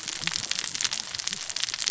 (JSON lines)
{"label": "biophony, cascading saw", "recorder": "SoundTrap 600 or HydroMoth"}